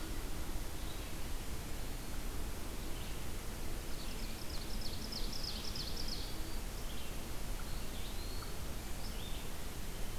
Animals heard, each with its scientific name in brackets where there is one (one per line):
Eastern Wood-Pewee (Contopus virens)
Red-eyed Vireo (Vireo olivaceus)
Ovenbird (Seiurus aurocapilla)